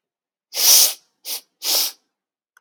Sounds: Sniff